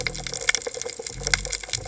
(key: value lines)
label: biophony
recorder: HydroMoth